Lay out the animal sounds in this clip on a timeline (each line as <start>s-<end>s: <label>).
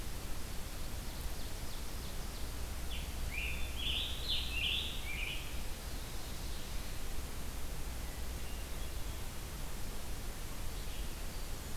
0.5s-2.7s: Ovenbird (Seiurus aurocapilla)
2.7s-5.5s: Scarlet Tanager (Piranga olivacea)
8.3s-11.8s: Red-eyed Vireo (Vireo olivaceus)